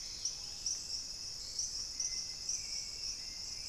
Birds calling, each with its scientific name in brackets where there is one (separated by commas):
Dusky-capped Greenlet (Pachysylvia hypoxantha), Dusky-throated Antshrike (Thamnomanes ardesiacus), Screaming Piha (Lipaugus vociferans), Hauxwell's Thrush (Turdus hauxwelli)